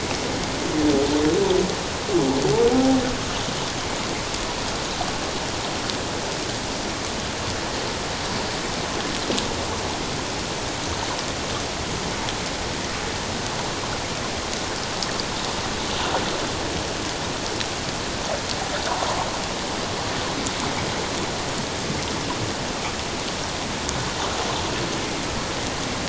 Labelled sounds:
2.7	3.0	humpback whale, 0.78 to 0.84 kHz

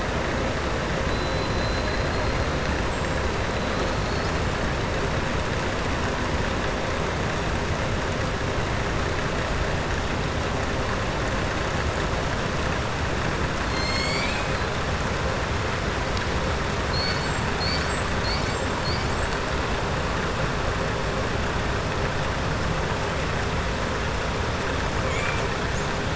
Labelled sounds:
1.1	2.4	killer whale, southern resident, 3.9 to 4.9 kHz
2.8	3.2	killer whale, southern resident, 7.0 to 8.0 kHz
13.6	14.7	killer whale, southern resident, 2.1 to 7.5 kHz
25.0	25.4	killer whale, southern resident, 1.2 to 3.6 kHz

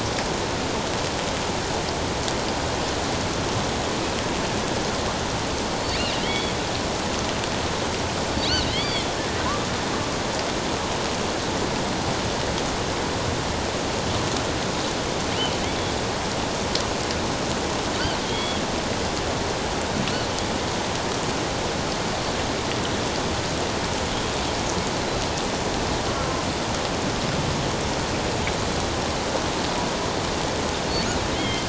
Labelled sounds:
6.2	6.5	killer whale, offshore, 1.9 to 4.6 kHz
8.4	9.1	killer whale, offshore, 2.0 to 4.8 kHz
18.2	18.6	killer whale, offshore, 3.2 to 3.6 kHz
31.3	31.6	killer whale, offshore, 2.0 to 3.4 kHz

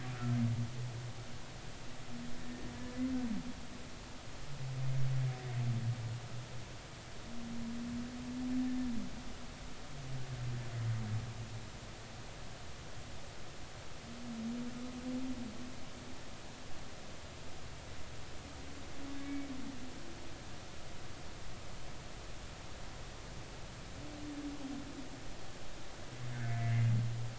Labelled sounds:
19.2	19.5	humpback whale, 2.2 to 2.4 kHz
26.3	26.6	humpback whale, 1.4 to 1.8 kHz

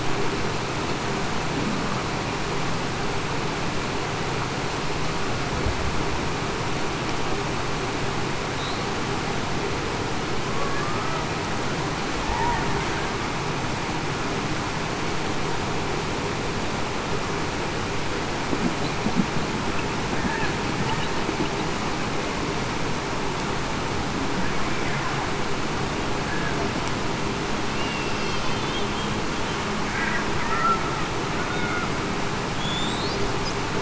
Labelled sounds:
10.4	10.8	killer whale, Bigg's (transient), 0.98 to 1.1 kHz
27.7	28.2	killer whale, Bigg's (transient), 2.6 to 2.9 kHz
31.5	31.9	killer whale, Bigg's (transient), 1.4 to 1.5 kHz

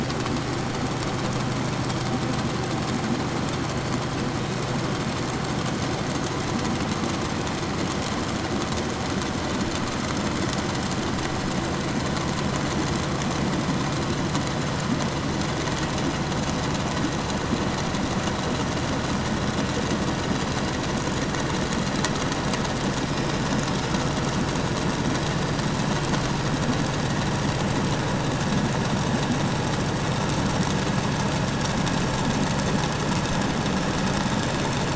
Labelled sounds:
4.2	5.0	killer whale, 2.2 to 4.0 kHz
22.8	24.7	killer whale, 4.8 to 5.5 kHz
25.3	25.8	killer whale, 4.6 to 5.1 kHz

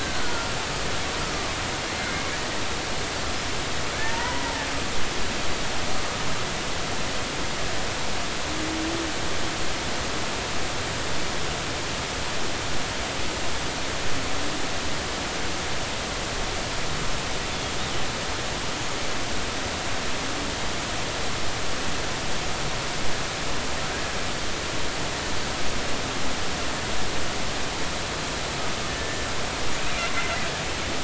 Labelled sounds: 0.0	0.5	killer whale, Bigg's (transient), 1.3 to 1.7 kHz
1.2	2.4	killer whale, Bigg's (transient), 1.1 to 2.4 kHz
4.0	4.5	killer whale, Bigg's (transient), 0.86 to 2.0 kHz
28.9	29.3	killer whale, Bigg's (transient), 1.7 to 1.8 kHz

